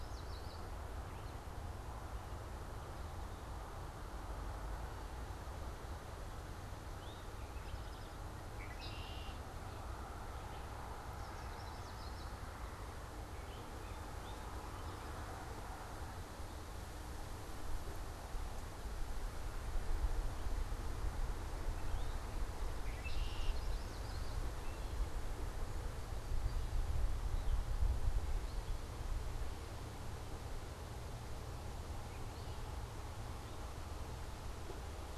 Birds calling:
Red-winged Blackbird (Agelaius phoeniceus), Eastern Towhee (Pipilo erythrophthalmus), Yellow Warbler (Setophaga petechia)

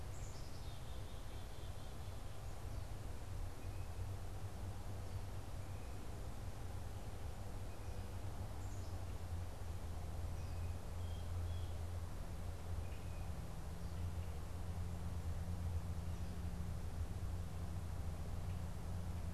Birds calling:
Black-capped Chickadee (Poecile atricapillus), Blue Jay (Cyanocitta cristata)

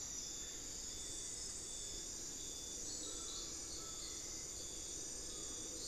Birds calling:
Buckley's Forest-Falcon (Micrastur buckleyi)

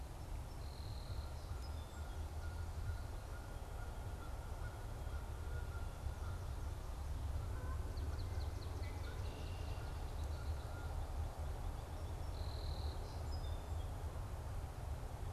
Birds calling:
Canada Goose (Branta canadensis), Song Sparrow (Melospiza melodia), Red-winged Blackbird (Agelaius phoeniceus), Swamp Sparrow (Melospiza georgiana)

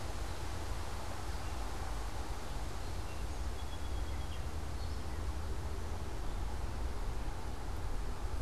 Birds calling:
Gray Catbird (Dumetella carolinensis), Song Sparrow (Melospiza melodia)

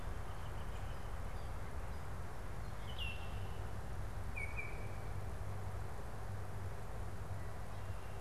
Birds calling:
Northern Flicker (Colaptes auratus), Baltimore Oriole (Icterus galbula)

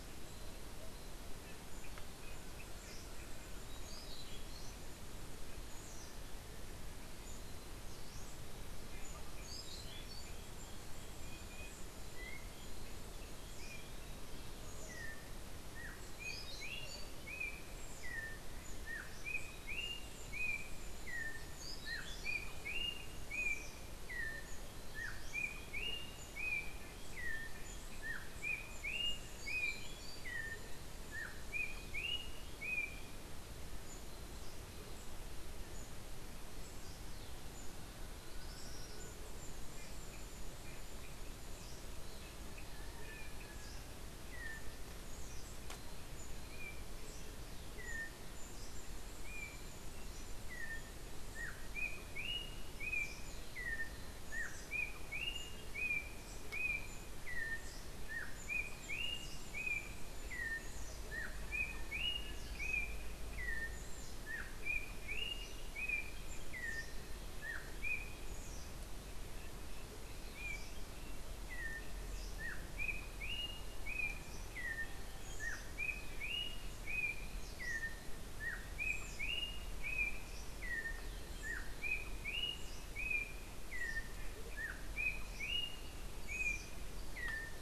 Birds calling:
Tropical Kingbird (Tyrannus melancholicus), Orange-billed Nightingale-Thrush (Catharus aurantiirostris), Yellow-backed Oriole (Icterus chrysater)

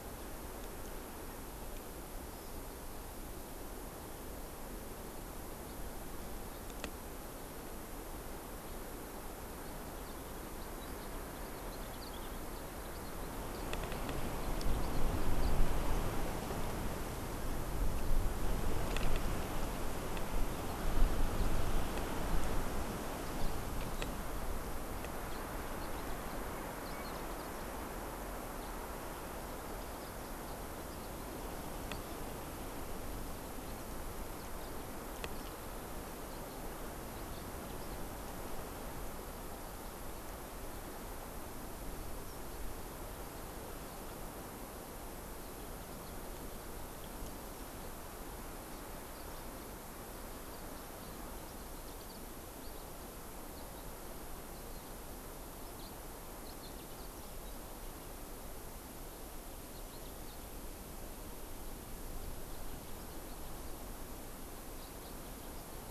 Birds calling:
Yellow-fronted Canary (Crithagra mozambica), Hawaii Amakihi (Chlorodrepanis virens)

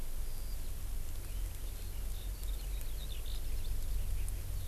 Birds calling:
Eurasian Skylark (Alauda arvensis)

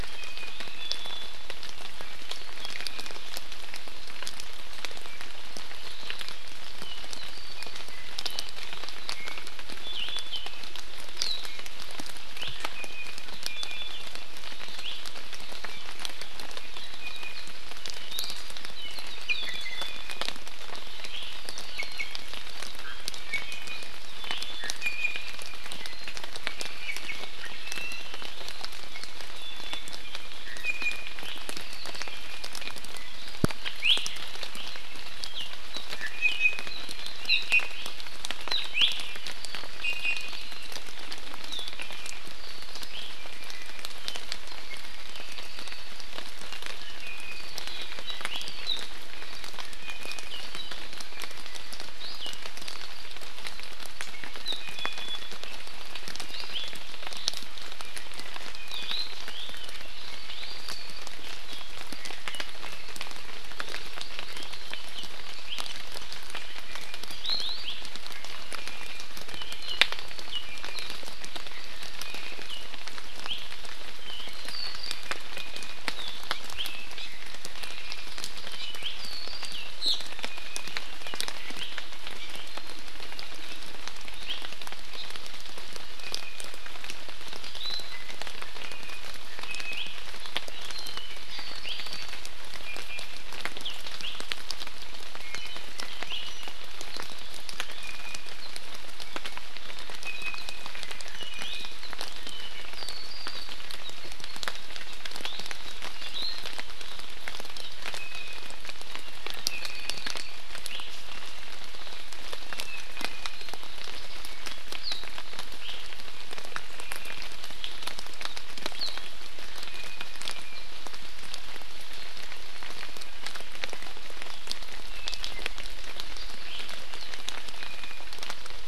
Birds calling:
Hawaii Amakihi (Chlorodrepanis virens), Iiwi (Drepanis coccinea), Apapane (Himatione sanguinea)

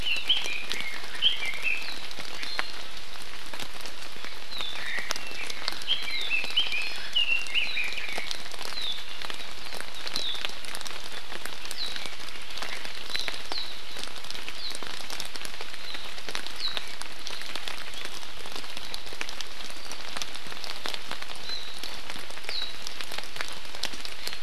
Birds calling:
Red-billed Leiothrix (Leiothrix lutea), Warbling White-eye (Zosterops japonicus)

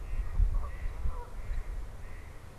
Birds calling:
Red-winged Blackbird (Agelaius phoeniceus), Mallard (Anas platyrhynchos), Canada Goose (Branta canadensis)

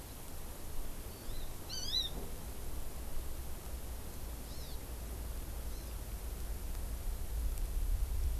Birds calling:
Hawaii Amakihi (Chlorodrepanis virens)

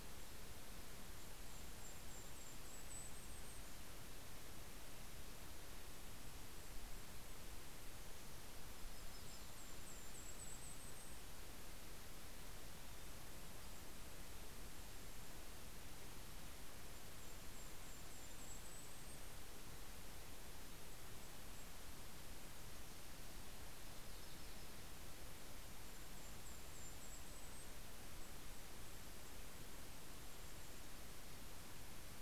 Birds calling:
Yellow-rumped Warbler (Setophaga coronata), Golden-crowned Kinglet (Regulus satrapa)

